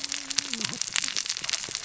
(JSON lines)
{"label": "biophony, cascading saw", "recorder": "SoundTrap 600 or HydroMoth"}